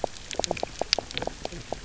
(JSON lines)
{"label": "biophony, knock croak", "recorder": "SoundTrap 300"}